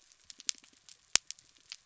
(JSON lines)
{"label": "biophony", "recorder": "SoundTrap 300"}